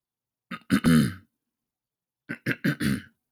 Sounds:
Throat clearing